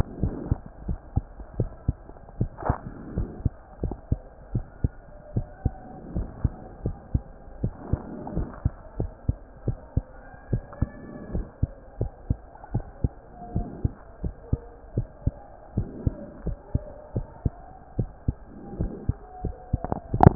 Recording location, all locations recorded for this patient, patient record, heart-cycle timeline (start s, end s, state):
mitral valve (MV)
aortic valve (AV)+pulmonary valve (PV)+tricuspid valve (TV)+mitral valve (MV)
#Age: Child
#Sex: Male
#Height: 111.0 cm
#Weight: 17.8 kg
#Pregnancy status: False
#Murmur: Absent
#Murmur locations: nan
#Most audible location: nan
#Systolic murmur timing: nan
#Systolic murmur shape: nan
#Systolic murmur grading: nan
#Systolic murmur pitch: nan
#Systolic murmur quality: nan
#Diastolic murmur timing: nan
#Diastolic murmur shape: nan
#Diastolic murmur grading: nan
#Diastolic murmur pitch: nan
#Diastolic murmur quality: nan
#Outcome: Normal
#Campaign: 2015 screening campaign
0.00	5.30	unannotated
5.30	5.46	S1
5.46	5.63	systole
5.63	5.74	S2
5.74	6.12	diastole
6.12	6.28	S1
6.28	6.41	systole
6.41	6.54	S2
6.54	6.82	diastole
6.82	6.96	S1
6.96	7.12	systole
7.12	7.22	S2
7.22	7.62	diastole
7.62	7.74	S1
7.74	7.88	systole
7.88	8.02	S2
8.02	8.36	diastole
8.36	8.48	S1
8.48	8.62	systole
8.62	8.74	S2
8.74	8.96	diastole
8.96	9.12	S1
9.12	9.25	systole
9.25	9.38	S2
9.38	9.63	diastole
9.63	9.78	S1
9.78	9.94	systole
9.94	10.04	S2
10.04	10.49	diastole
10.49	10.64	S1
10.64	10.79	systole
10.79	10.89	S2
10.89	11.32	diastole
11.32	11.46	S1
11.46	11.58	systole
11.58	11.72	S2
11.72	11.98	diastole
11.98	12.12	S1
12.12	12.27	systole
12.27	12.38	S2
12.38	12.71	diastole
12.71	12.84	S1
12.84	13.01	systole
13.01	13.12	S2
13.12	13.52	diastole
13.52	13.66	S1
13.66	13.82	systole
13.82	13.94	S2
13.94	14.21	diastole
14.21	14.34	S1
14.34	14.50	systole
14.50	14.60	S2
14.60	14.94	diastole
14.94	15.08	S1
15.08	15.24	systole
15.24	15.36	S2
15.36	15.75	diastole
15.75	15.87	S1
15.87	16.04	systole
16.04	16.16	S2
16.16	16.43	diastole
16.43	16.58	S1
16.58	16.72	systole
16.72	16.84	S2
16.84	17.13	diastole
17.13	17.26	S1
17.26	17.43	systole
17.43	17.54	S2
17.54	17.95	diastole
17.95	18.08	S1
18.08	20.35	unannotated